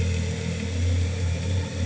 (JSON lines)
{"label": "anthrophony, boat engine", "recorder": "HydroMoth"}